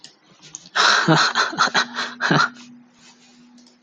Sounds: Laughter